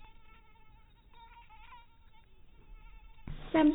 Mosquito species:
mosquito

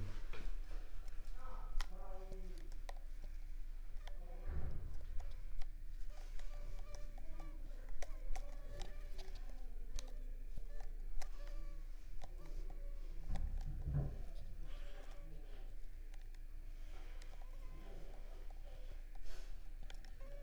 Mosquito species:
Culex pipiens complex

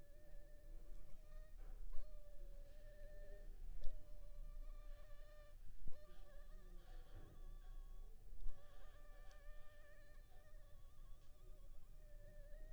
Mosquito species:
Anopheles funestus s.s.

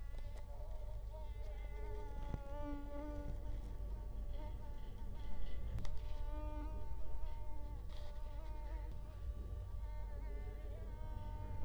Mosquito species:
Culex quinquefasciatus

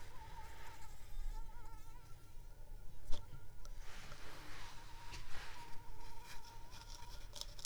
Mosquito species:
Anopheles arabiensis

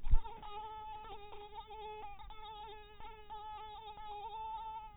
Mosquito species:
mosquito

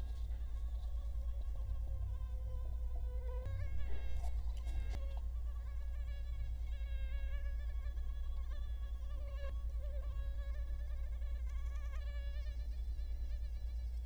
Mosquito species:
Culex quinquefasciatus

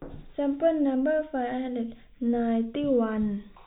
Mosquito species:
no mosquito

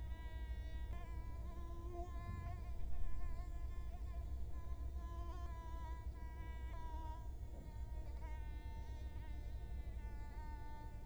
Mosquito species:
Culex quinquefasciatus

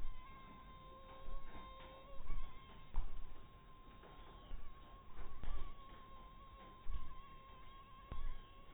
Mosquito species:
mosquito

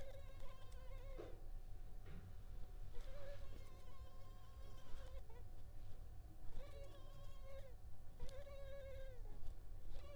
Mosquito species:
Culex pipiens complex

